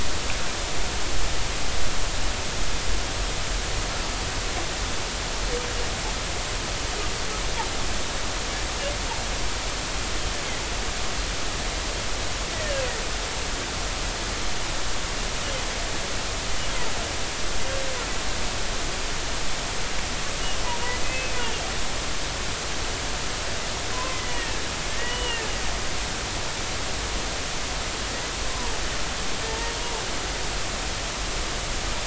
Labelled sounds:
12.5	12.9	humpback whale, 1.6 to 3.1 kHz
21.0	21.4	humpback whale, 2.4 to 2.7 kHz
23.9	25.5	humpback whale, 0.96 to 3.0 kHz
29.5	29.7	humpback whale, 0.83 to 0.99 kHz

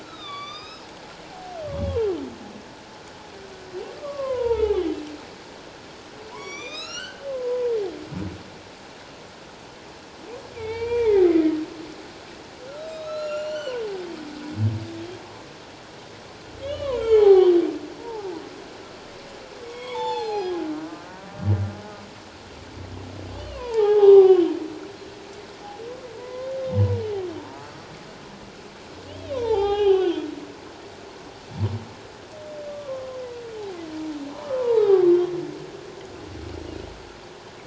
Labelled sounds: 0.0	0.9	humpback whale, 1.1 to 6.4 kHz
1.7	2.0	humpback whale, 3.2 to 3.4 kHz
4.0	4.8	humpback whale, 0.78 to 3.2 kHz
6.3	7.7	humpback whale, 0.88 to 7.2 kHz
10.5	11.3	humpback whale, 0.81 to 3.8 kHz
12.8	13.8	humpback whale, 1.2 to 7.2 kHz
16.7	17.6	humpback whale, 0.78 to 4.6 kHz
18.0	18.3	humpback whale, 0.78 to 1.0 kHz
19.7	21.1	humpback whale, 0.78 to 7.8 kHz
23.4	24.4	humpback whale, 0.78 to 3.1 kHz
26.1	26.6	humpback whale, 0.94 to 2.2 kHz
27.4	27.6	humpback whale, 0.88 to 1.0 kHz
29.1	30.3	humpback whale, 0.78 to 3.9 kHz
32.7	33.2	humpback whale, 1.0 to 1.2 kHz
34.4	35.1	humpback whale, 0.78 to 1.3 kHz

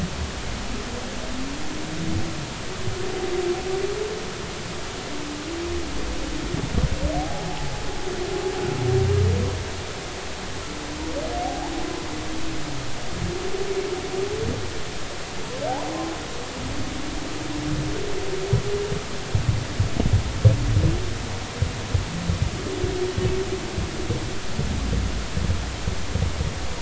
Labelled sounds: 7.1	7.7	humpback whale, 0.80 to 0.90 kHz
11.4	11.7	humpback whale, 0.80 to 1.1 kHz

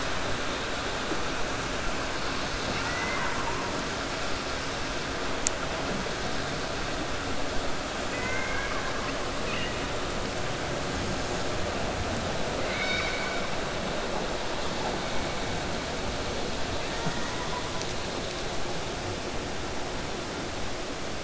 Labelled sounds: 2.6	3.6	killer whale, 0.89 to 6.1 kHz
8.0	9.2	killer whale, 1.0 to 2.7 kHz
12.6	13.5	killer whale, 0.80 to 6.0 kHz

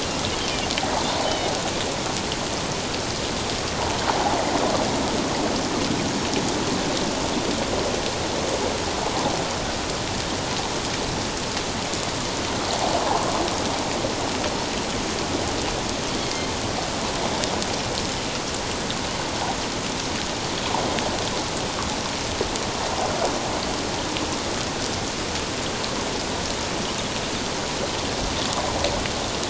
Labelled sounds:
0.4	1.5	Pacific white-sided dolphin, 2.9 to 3.8 kHz

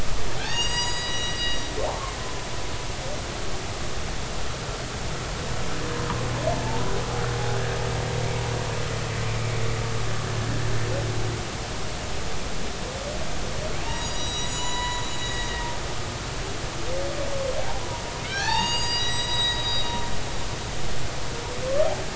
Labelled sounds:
0.4	2.2	humpback whale, 0.93 to 7.8 kHz
13.8	15.5	humpback whale, 0.86 to 7.9 kHz
18.2	20.0	humpback whale, 0.80 to 7.7 kHz

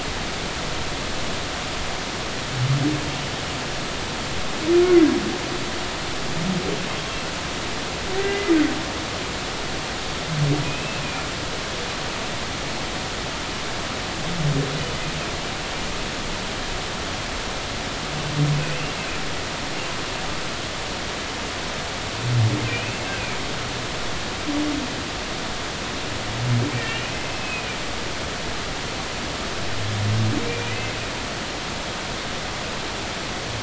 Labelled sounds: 8.2	8.5	humpback whale, 2.0 to 2.1 kHz
10.6	11.0	humpback whale, 2.4 to 2.7 kHz
18.6	18.9	humpback whale, 2.4 to 2.8 kHz
22.7	23.0	humpback whale, 2.3 to 2.8 kHz
26.8	27.8	humpback whale, 2.2 to 3.0 kHz
30.5	31.0	humpback whale, 1.9 to 2.7 kHz

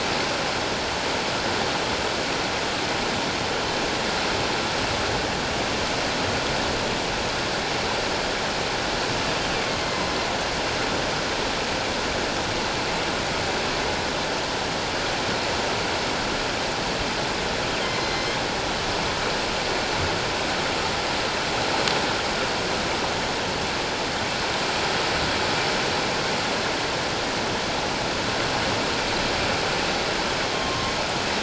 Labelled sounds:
9.8	10.0	killer whale, northern resident, A clan, AA subclan, 2.0 to 2.1 kHz
17.8	18.3	killer whale, northern resident, A clan, AA subclan, 2.0 to 6.2 kHz
30.7	30.9	killer whale, northern resident, A clan, AA subclan, 1.0 to 1.1 kHz

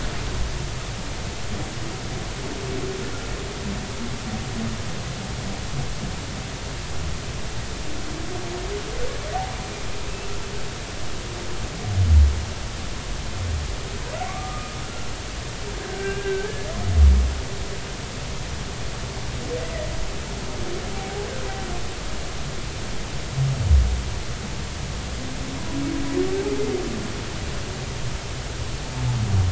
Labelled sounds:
14.3	15.1	humpback whale, 1.1 to 1.5 kHz
15.8	16.6	humpback whale, 1.5 to 1.8 kHz
20.9	21.3	humpback whale, 0.80 to 0.86 kHz

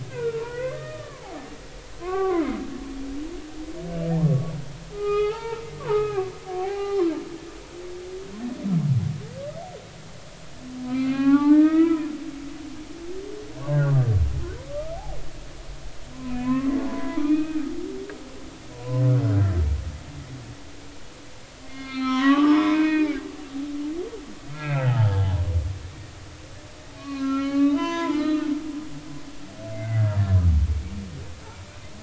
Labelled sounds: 0.0	1.5	humpback whale, 0.80 to 2.2 kHz
2.0	2.6	humpback whale, 0.80 to 2.4 kHz
4.3	4.5	humpback whale, 1.1 to 1.2 kHz
4.9	7.1	humpback whale, 0.80 to 4.1 kHz
10.9	12.1	humpback whale, 0.80 to 4.2 kHz
13.7	14.1	humpback whale, 1.1 to 1.7 kHz
14.9	15.2	humpback whale, 0.80 to 0.90 kHz
16.2	17.6	humpback whale, 0.86 to 2.7 kHz
18.7	19.0	humpback whale, 0.93 to 1.1 kHz
21.6	23.2	humpback whale, 0.80 to 5.4 kHz
24.5	25.4	humpback whale, 0.80 to 3.2 kHz
27.0	28.5	humpback whale, 0.83 to 6.5 kHz
29.7	30.1	humpback whale, 1.9 to 2.2 kHz

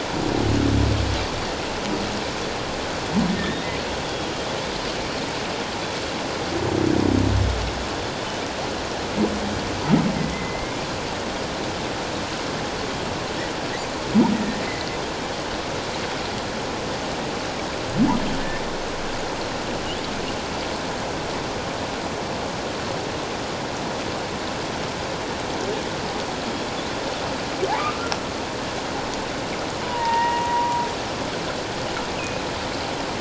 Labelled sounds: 3.3	4.3	humpback whale, 1.7 to 3.4 kHz
10.2	10.8	humpback whale, 1.9 to 2.2 kHz
14.3	14.6	humpback whale, 1.8 to 2.0 kHz
29.8	30.8	humpback whale, 0.84 to 2.9 kHz

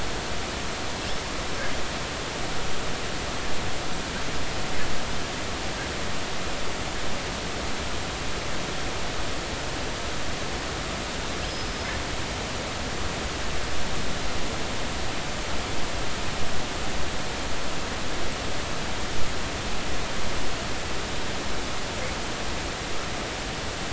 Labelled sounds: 11.5	11.9	killer whale, northern resident, 5.0 to 5.2 kHz

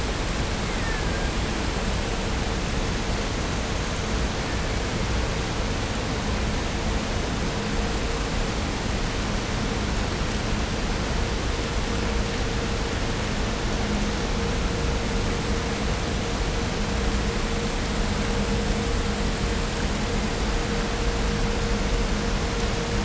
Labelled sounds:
0.5	1.6	killer whale, Bigg's (transient), 0.82 to 2.7 kHz
4.4	5.3	killer whale, Bigg's (transient), 1.1 to 2.8 kHz

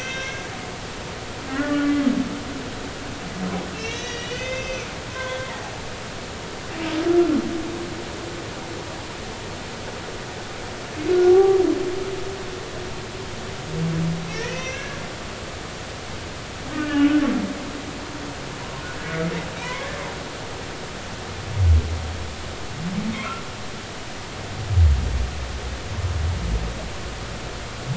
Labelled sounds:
1.5	2.0	humpback whale, 1.1 to 1.9 kHz
3.7	5.5	humpback whale, 0.96 to 6.4 kHz
11.3	11.6	humpback whale, 0.80 to 1.2 kHz
14.3	15.0	humpback whale, 1.5 to 2.8 kHz
16.7	17.1	humpback whale, 1.4 to 1.9 kHz
19.6	19.9	humpback whale, 0.90 to 2.3 kHz

